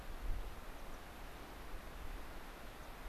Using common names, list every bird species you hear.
American Pipit